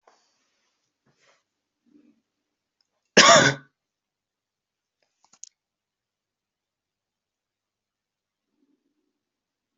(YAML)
expert_labels:
- quality: good
  cough_type: dry
  dyspnea: false
  wheezing: false
  stridor: false
  choking: false
  congestion: false
  nothing: true
  diagnosis: COVID-19
  severity: unknown
age: 23
gender: male
respiratory_condition: false
fever_muscle_pain: false
status: COVID-19